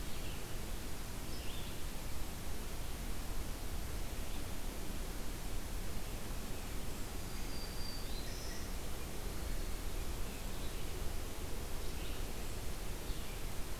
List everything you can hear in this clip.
Red-eyed Vireo, Black-throated Green Warbler